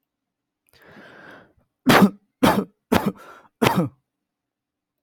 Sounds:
Cough